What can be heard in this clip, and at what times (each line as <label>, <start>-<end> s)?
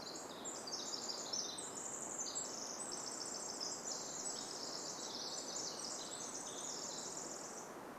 Varied Thrush song, 0-4 s
Pacific Wren song, 0-8 s